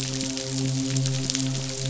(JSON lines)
{"label": "biophony, midshipman", "recorder": "SoundTrap 500"}